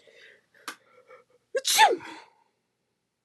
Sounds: Sneeze